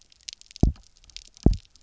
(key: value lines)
label: biophony, double pulse
recorder: SoundTrap 300